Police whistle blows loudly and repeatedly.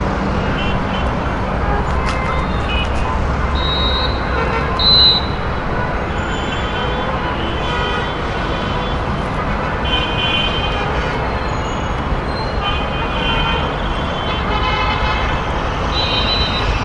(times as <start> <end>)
3.4 5.5